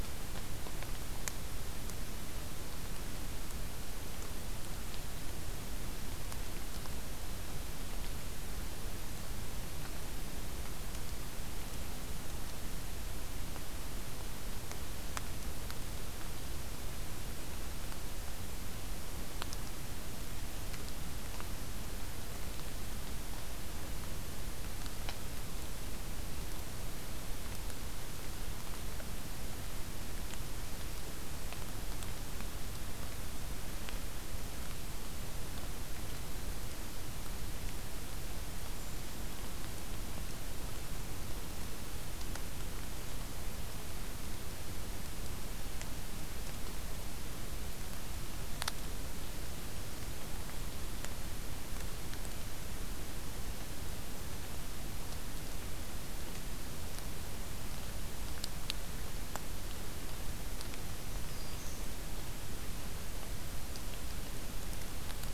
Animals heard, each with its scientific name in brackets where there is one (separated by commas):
Black-throated Green Warbler (Setophaga virens)